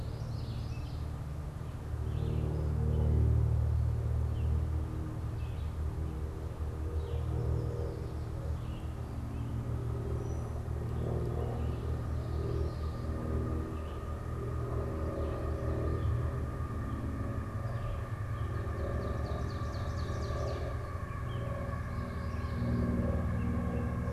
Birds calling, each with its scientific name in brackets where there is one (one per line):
Red-eyed Vireo (Vireo olivaceus)
Common Yellowthroat (Geothlypis trichas)
Brown-headed Cowbird (Molothrus ater)
Ovenbird (Seiurus aurocapilla)